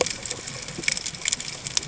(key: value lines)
label: ambient
recorder: HydroMoth